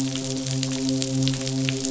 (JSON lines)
{"label": "biophony, midshipman", "recorder": "SoundTrap 500"}